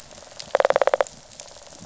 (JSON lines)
{"label": "biophony, rattle", "recorder": "SoundTrap 500"}